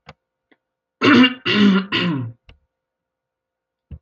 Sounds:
Throat clearing